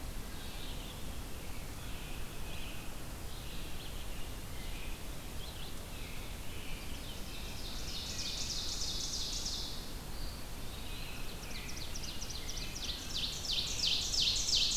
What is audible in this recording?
Red-eyed Vireo, American Robin, Ovenbird, Eastern Wood-Pewee